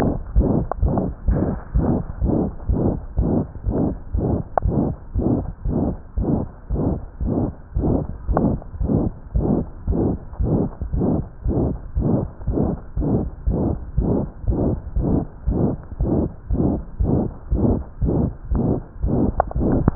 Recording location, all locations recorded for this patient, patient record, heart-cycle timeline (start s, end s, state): tricuspid valve (TV)
aortic valve (AV)+pulmonary valve (PV)+tricuspid valve (TV)+mitral valve (MV)
#Age: Child
#Sex: Female
#Height: 84.0 cm
#Weight: 10.9 kg
#Pregnancy status: False
#Murmur: Present
#Murmur locations: aortic valve (AV)+mitral valve (MV)+pulmonary valve (PV)+tricuspid valve (TV)
#Most audible location: aortic valve (AV)
#Systolic murmur timing: Holosystolic
#Systolic murmur shape: Diamond
#Systolic murmur grading: III/VI or higher
#Systolic murmur pitch: High
#Systolic murmur quality: Harsh
#Diastolic murmur timing: nan
#Diastolic murmur shape: nan
#Diastolic murmur grading: nan
#Diastolic murmur pitch: nan
#Diastolic murmur quality: nan
#Outcome: Abnormal
#Campaign: 2015 screening campaign
0.00	0.22	unannotated
0.22	0.32	diastole
0.32	0.40	S1
0.40	0.50	systole
0.50	0.62	S2
0.62	0.80	diastole
0.80	0.85	S1
0.85	1.06	systole
1.06	1.12	S2
1.12	1.26	diastole
1.26	1.38	S1
1.38	1.48	systole
1.48	1.56	S2
1.56	1.74	diastole
1.74	1.82	S1
1.82	1.96	systole
1.96	2.03	S2
2.03	2.20	diastole
2.20	2.32	S1
2.32	2.43	systole
2.43	2.51	S2
2.51	2.64	diastole
2.64	2.76	S1
2.76	2.91	systole
2.91	3.01	S2
3.01	3.16	diastole
3.16	3.30	S1
3.30	3.39	systole
3.39	3.46	S2
3.46	3.65	diastole
3.65	3.74	S1
3.74	3.85	systole
3.85	3.98	S2
3.98	4.12	diastole
4.12	4.24	S1
4.24	4.36	systole
4.36	4.44	S2
4.44	4.64	diastole
4.64	4.78	S1
4.78	4.86	systole
4.86	4.95	S2
4.95	5.14	diastole
5.14	5.24	S1
5.24	5.35	systole
5.35	5.44	S2
5.44	5.64	diastole
5.64	5.76	S1
5.76	5.87	systole
5.87	5.97	S2
5.97	6.16	diastole
6.16	6.28	S1
6.28	6.38	systole
6.38	6.46	S2
6.46	6.68	diastole
6.68	6.80	S1
6.80	6.92	systole
6.92	7.01	S2
7.01	7.19	diastole
7.19	7.31	S1
7.31	7.44	systole
7.44	7.52	S2
7.52	7.74	diastole
7.74	7.86	S1
7.86	7.96	systole
7.96	8.07	S2
8.07	8.26	diastole
8.26	8.36	S1
8.36	8.50	systole
8.50	8.59	S2
8.59	8.79	diastole
8.79	8.90	S1
8.90	9.03	systole
9.03	9.14	S2
9.14	9.34	diastole
9.34	9.43	S1
9.43	9.56	systole
9.56	9.65	S2
9.65	9.86	diastole
9.86	9.98	S1
9.98	10.10	systole
10.10	10.18	S2
10.18	10.38	diastole
10.38	10.48	S1
10.48	10.62	systole
10.62	10.70	S2
10.70	10.91	diastole
10.91	11.00	S1
11.00	11.17	systole
11.17	11.26	S2
11.26	11.44	diastole
11.44	11.52	S1
11.52	11.69	systole
11.69	11.79	S2
11.79	11.94	diastole
11.94	12.03	S1
12.03	12.19	systole
12.19	12.30	S2
12.30	12.46	diastole
12.46	12.58	S1
12.58	12.70	systole
12.70	12.80	S2
12.80	12.96	diastole
12.96	13.05	S1
13.05	13.22	systole
13.22	13.32	S2
13.32	13.46	diastole
13.46	13.55	S1
13.55	13.67	systole
13.67	13.76	S2
13.76	13.94	diastole
13.94	14.06	S1
14.06	14.20	systole
14.20	14.30	S2
14.30	14.46	diastole
14.46	14.56	S1
14.56	14.69	systole
14.69	14.76	S2
14.76	14.94	diastole
14.94	15.06	S1
15.06	15.18	systole
15.18	15.27	S2
15.27	15.44	diastole
15.44	15.55	S1
15.55	15.70	systole
15.70	15.80	S2
15.80	15.97	diastole
15.97	16.08	S1
16.08	16.22	systole
16.22	16.32	S2
16.32	16.48	diastole
16.48	16.59	S1
16.59	16.73	systole
16.73	16.82	S2
16.82	16.98	diastole
16.98	17.06	S1
17.06	17.21	systole
17.21	17.31	S2
17.31	17.50	diastole
17.50	17.64	S1
17.64	17.70	systole
17.70	17.82	S2
17.82	17.99	diastole
17.99	18.11	S1
18.11	18.24	systole
18.24	18.34	S2
18.34	18.48	diastole
18.48	18.58	S1
18.58	18.72	systole
18.72	18.88	S2
18.88	19.02	diastole
19.02	19.95	unannotated